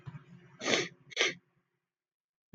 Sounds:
Sniff